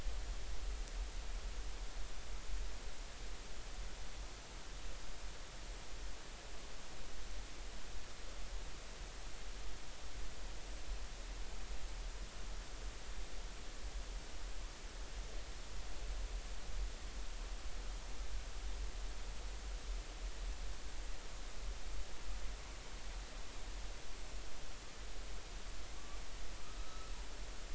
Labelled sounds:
26.8	27.1	killer whale, northern resident, 1.2 to 4.0 kHz

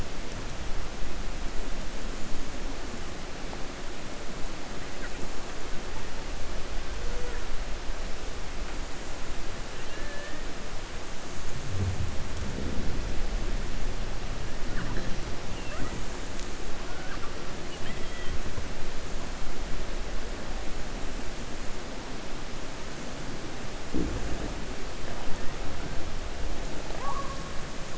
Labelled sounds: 9.7	10.4	killer whale, 1.2 to 3.2 kHz

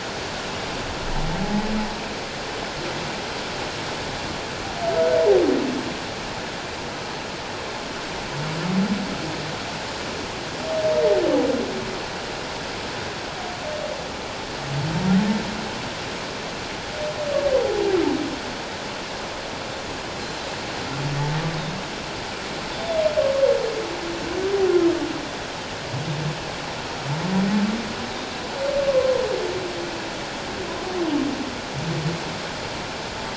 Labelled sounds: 20.2	20.5	humpback whale, 3.8 to 4.2 kHz
28.9	29.2	Pacific white-sided dolphin, 1.0 to 1.2 kHz

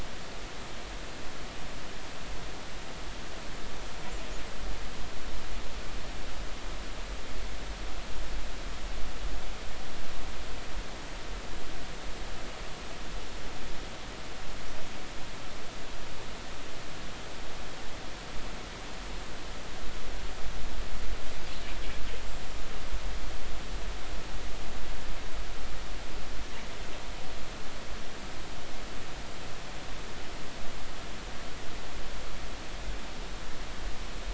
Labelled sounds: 22.4	22.7	killer whale, northern resident, 6.9 to 7.3 kHz

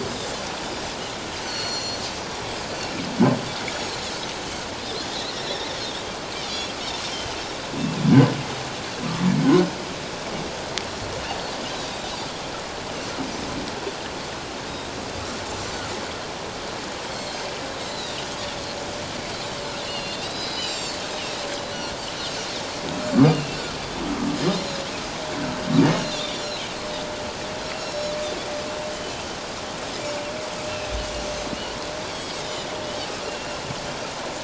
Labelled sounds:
1.3	2.0	Pacific white-sided dolphin, 4.2 to 7.3 kHz
5.2	5.5	Pacific white-sided dolphin, 1.8 to 2.0 kHz
7.1	7.4	Pacific white-sided dolphin, 2.8 to 3.2 kHz
11.3	11.5	Pacific white-sided dolphin, 4.2 to 4.6 kHz
17.1	19.6	Pacific white-sided dolphin, 3.2 to 7.6 kHz
19.8	21.3	Pacific white-sided dolphin, 2.7 to 7.6 kHz
21.7	21.9	Pacific white-sided dolphin, 5.6 to 5.9 kHz
23.3	23.6	Pacific white-sided dolphin, 2.6 to 2.9 kHz
24.6	24.8	Pacific white-sided dolphin, 3.7 to 4.2 kHz
25.9	26.6	Pacific white-sided dolphin, 2.7 to 5.7 kHz
27.8	28.1	Pacific white-sided dolphin, 3.9 to 6.9 kHz
32.1	32.4	Pacific white-sided dolphin, 4.3 to 7.8 kHz
33.2	33.6	Pacific white-sided dolphin, 2.7 to 2.8 kHz

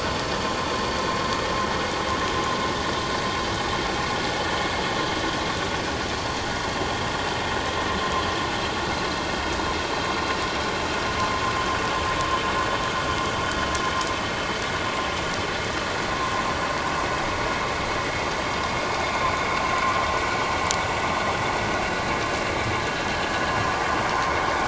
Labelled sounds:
19.7	20.0	vessel noise, 0.97 to 1.2 kHz

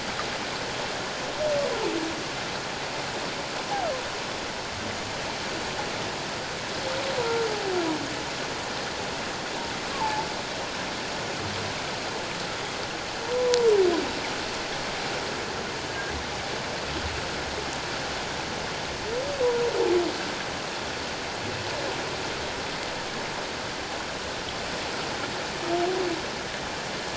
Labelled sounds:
9.9	10.3	humpback whale, 0.81 to 1.2 kHz
13.3	13.7	humpback whale, 0.91 to 1.0 kHz

